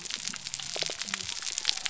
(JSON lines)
{"label": "biophony", "recorder": "SoundTrap 300"}